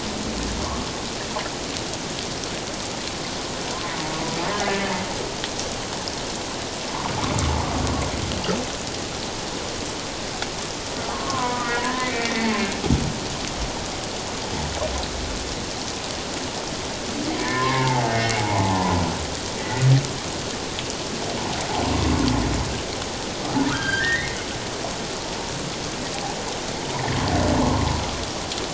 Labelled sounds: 3.7	4.0	humpback whale, 0.91 to 1.1 kHz
4.6	5.0	humpback whale, 1.7 to 1.8 kHz
11.1	12.6	humpback whale, 0.94 to 2.4 kHz
17.4	19.0	humpback whale, 0.78 to 2.3 kHz
23.7	24.4	humpback whale, 1.2 to 3.3 kHz
27.6	28.0	humpback whale, 0.91 to 1.2 kHz

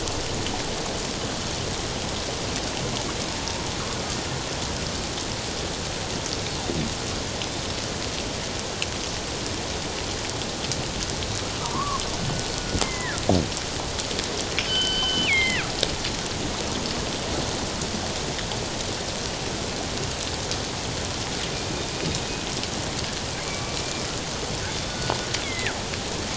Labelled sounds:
11.6	12.0	killer whale, northern resident, G clan, 0.91 to 1.2 kHz
12.8	13.2	killer whale, northern resident, G clan, 1.5 to 2.2 kHz
14.6	15.6	killer whale, northern resident, G clan, 1.4 to 5.4 kHz
23.5	23.8	killer whale, northern resident, G clan, 1.1 to 1.2 kHz
25.4	25.8	killer whale, northern resident, G clan, 1.3 to 2.3 kHz

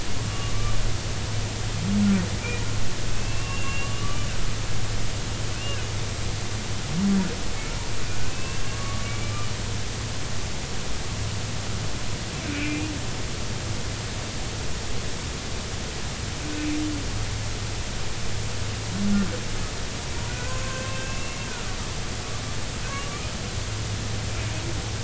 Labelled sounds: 0.3	0.5	humpback whale, 1.1 to 1.2 kHz
3.1	4.3	humpback whale, 1.1 to 3.0 kHz
5.5	5.9	humpback whale, 2.5 to 2.9 kHz
8.2	9.2	humpback whale, 1.1 to 2.8 kHz
12.5	12.9	humpback whale, 2.2 to 2.7 kHz
16.5	16.8	humpback whale, 2.3 to 2.6 kHz
20.3	21.8	humpback whale, 0.99 to 2.8 kHz
23.0	23.3	humpback whale, 1.1 to 1.3 kHz

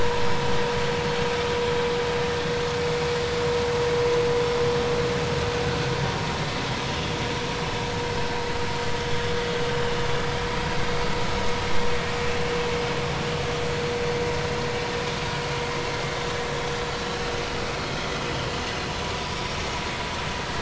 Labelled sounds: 19.3	19.6	vessel noise, 3.4 to 3.8 kHz

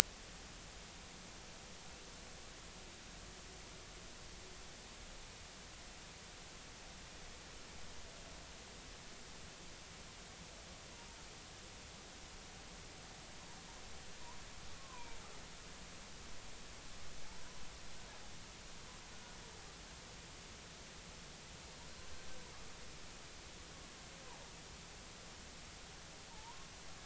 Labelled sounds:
14.8	15.2	humpback whale, 0.90 to 1.1 kHz
26.3	26.7	humpback whale, 0.80 to 1.1 kHz

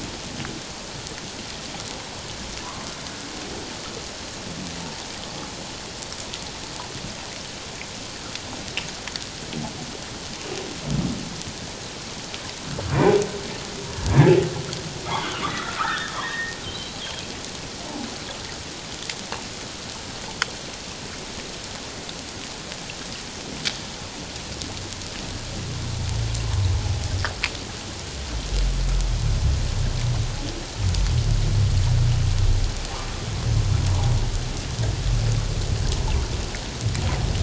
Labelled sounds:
14.0	14.3	humpback whale, 1.6 to 1.8 kHz
15.0	16.9	humpback whale, 0.78 to 3.7 kHz

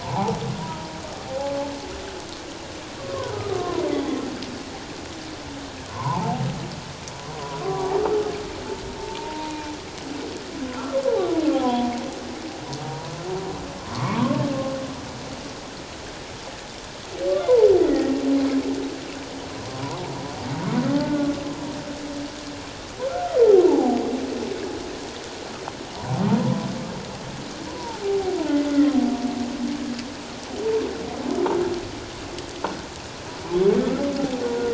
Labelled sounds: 0.0	0.9	humpback whale, 0.78 to 1.1 kHz
1.3	1.6	humpback whale, 0.78 to 0.91 kHz
3.0	4.2	humpback whale, 0.94 to 2.1 kHz
5.9	6.4	humpback whale, 0.78 to 1.2 kHz
7.6	7.9	humpback whale, 1.0 to 1.2 kHz
9.0	9.5	humpback whale, 0.84 to 0.97 kHz
11.5	11.9	humpback whale, 0.78 to 1.1 kHz
13.9	14.4	humpback whale, 0.88 to 1.2 kHz
17.8	18.1	humpback whale, 1.8 to 2.1 kHz
19.8	20.1	humpback whale, 0.84 to 1.2 kHz
20.9	21.2	humpback whale, 0.84 to 0.94 kHz
23.1	24.0	humpback whale, 0.78 to 1.6 kHz
26.4	26.7	humpback whale, 0.88 to 1.1 kHz
27.7	28.4	humpback whale, 0.78 to 1.0 kHz

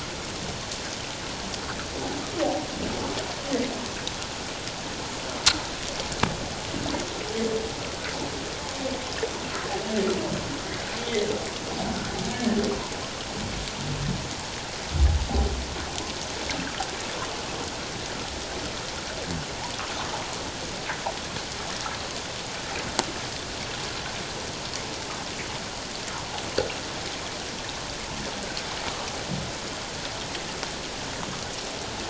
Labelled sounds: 12.3	12.6	humpback whale, 1.7 to 1.9 kHz

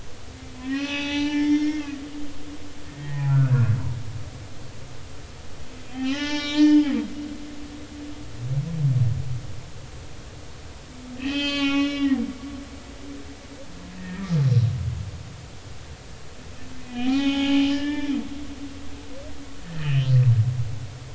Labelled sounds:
0.5	3.6	humpback whale, 0.80 to 6.1 kHz
5.9	6.9	humpback whale, 0.80 to 5.9 kHz
11.2	12.2	humpback whale, 0.80 to 6.0 kHz
14.0	14.3	humpback whale, 1.8 to 1.9 kHz
16.7	18.1	humpback whale, 0.80 to 5.4 kHz
19.7	20.1	humpback whale, 2.4 to 3.2 kHz

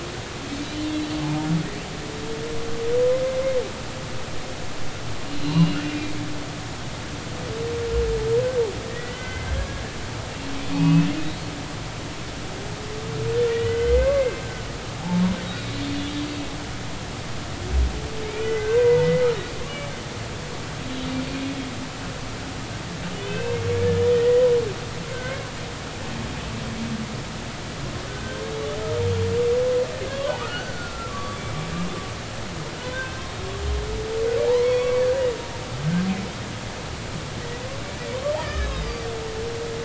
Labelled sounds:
0.8	1.1	humpback whale, 2.7 to 2.8 kHz
5.3	6.2	humpback whale, 2.3 to 4.2 kHz
8.8	9.6	humpback whale, 1.5 to 2.1 kHz
10.7	11.1	humpback whale, 0.80 to 2.6 kHz
13.5	14.4	humpback whale, 0.99 to 2.2 kHz
15.4	15.7	humpback whale, 3.7 to 3.9 kHz
18.2	19.3	humpback whale, 0.86 to 2.5 kHz
19.6	19.9	humpback whale, 2.2 to 2.9 kHz
23.1	24.4	humpback whale, 1.5 to 3.2 kHz
25.1	25.5	humpback whale, 1.5 to 2.2 kHz
30.1	31.4	humpback whale, 1.1 to 3.4 kHz
32.8	33.2	humpback whale, 0.96 to 1.6 kHz
34.6	35.0	humpback whale, 2.2 to 4.5 kHz
38.4	39.1	humpback whale, 1.2 to 5.1 kHz

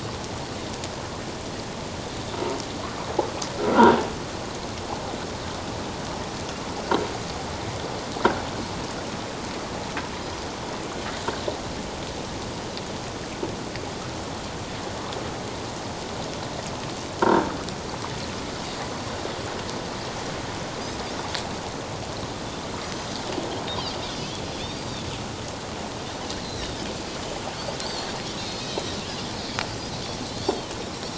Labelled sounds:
3.7	4.0	croaking sound likely from a nearby submerged object, 1.3 to 1.6 kHz
17.2	17.5	croaking sound likely from a nearby submerged object, 1.5 to 1.7 kHz
22.8	23.2	Pacific white-sided dolphin, 4.7 to 6.2 kHz
24.6	25.0	Pacific white-sided dolphin, 4.4 to 4.8 kHz
26.4	26.8	Pacific white-sided dolphin, 3.4 to 4.3 kHz
27.2	28.1	Pacific white-sided dolphin, 4.1 to 7.3 kHz
28.7	29.0	Pacific white-sided dolphin, 3.7 to 4.0 kHz
30.5	30.8	Pacific white-sided dolphin, 2.8 to 3.3 kHz

